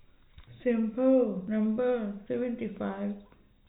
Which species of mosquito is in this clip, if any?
no mosquito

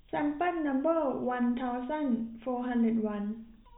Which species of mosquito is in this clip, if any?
no mosquito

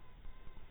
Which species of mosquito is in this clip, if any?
mosquito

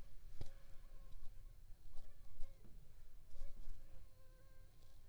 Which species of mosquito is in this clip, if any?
Aedes aegypti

